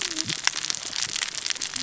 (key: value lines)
label: biophony, cascading saw
recorder: SoundTrap 600 or HydroMoth